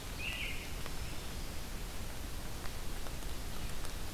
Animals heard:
Black-throated Green Warbler (Setophaga virens)
American Robin (Turdus migratorius)

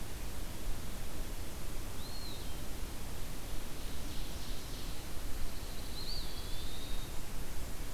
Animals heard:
Ovenbird (Seiurus aurocapilla)
Eastern Wood-Pewee (Contopus virens)
Pine Warbler (Setophaga pinus)

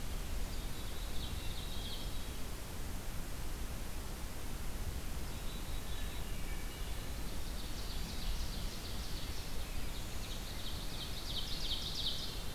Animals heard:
Hermit Thrush (Catharus guttatus)
Ovenbird (Seiurus aurocapilla)
Rose-breasted Grosbeak (Pheucticus ludovicianus)
Wood Thrush (Hylocichla mustelina)
Black-capped Chickadee (Poecile atricapillus)

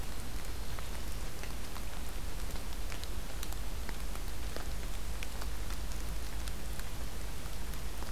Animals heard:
Black-throated Green Warbler (Setophaga virens)

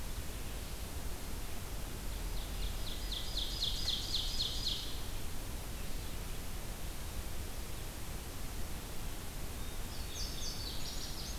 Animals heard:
Indigo Bunting (Passerina cyanea)
Ovenbird (Seiurus aurocapilla)

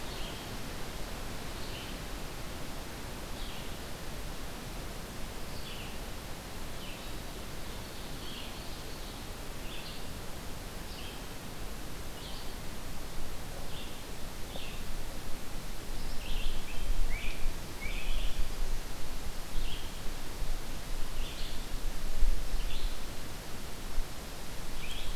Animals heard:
Ovenbird (Seiurus aurocapilla)
Red-eyed Vireo (Vireo olivaceus)

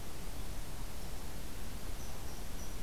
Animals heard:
Red Squirrel (Tamiasciurus hudsonicus)

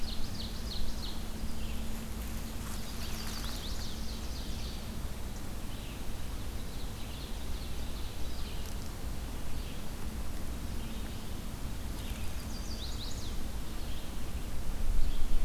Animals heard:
Ovenbird (Seiurus aurocapilla)
Red-eyed Vireo (Vireo olivaceus)
Chestnut-sided Warbler (Setophaga pensylvanica)

